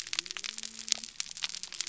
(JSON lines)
{"label": "biophony", "recorder": "SoundTrap 300"}